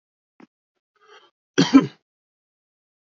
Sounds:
Cough